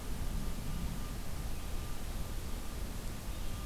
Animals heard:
forest ambience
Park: Marsh-Billings-Rockefeller National Historical Park